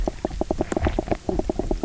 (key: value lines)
label: biophony, knock croak
recorder: SoundTrap 300